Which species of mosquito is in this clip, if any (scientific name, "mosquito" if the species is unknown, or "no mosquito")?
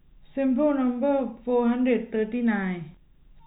no mosquito